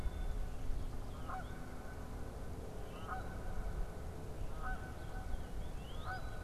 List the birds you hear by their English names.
Black-capped Chickadee, Canada Goose, Northern Cardinal